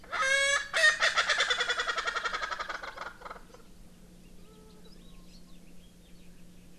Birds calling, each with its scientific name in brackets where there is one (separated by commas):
Erckel's Francolin (Pternistis erckelii)